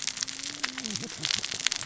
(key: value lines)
label: biophony, cascading saw
recorder: SoundTrap 600 or HydroMoth